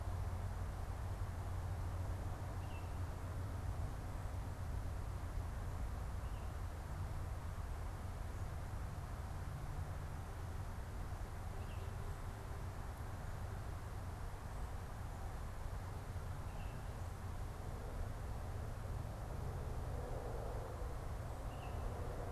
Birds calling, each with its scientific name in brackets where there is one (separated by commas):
Baltimore Oriole (Icterus galbula)